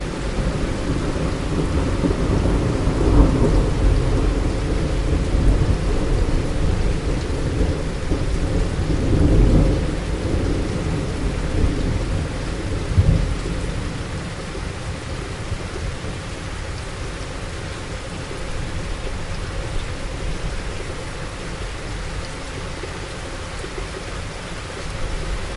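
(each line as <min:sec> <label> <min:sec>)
0:00.0 Rain falls with repeated thunder rumbling in the background. 0:14.1
0:14.2 Steady rain. 0:25.6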